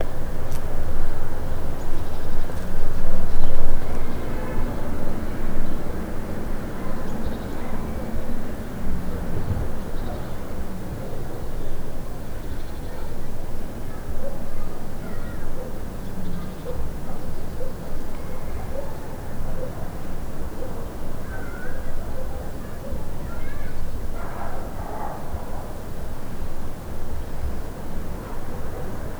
What animal can be heard making noise?
dog